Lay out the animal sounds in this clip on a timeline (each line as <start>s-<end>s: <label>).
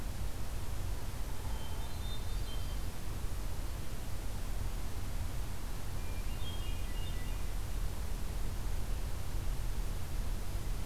1.4s-3.1s: Hermit Thrush (Catharus guttatus)
6.0s-7.2s: Hermit Thrush (Catharus guttatus)